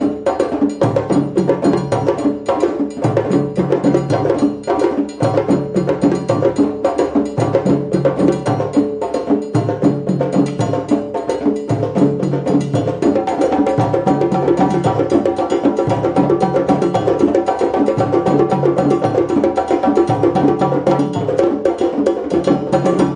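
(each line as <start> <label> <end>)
0.0 African drums beat rhythmically with a resonant tone. 23.2
0.0 Musical bells chime with a bright, melodic tone in a gentle rhythm. 23.2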